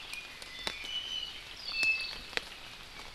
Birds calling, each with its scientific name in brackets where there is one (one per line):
Iiwi (Drepanis coccinea)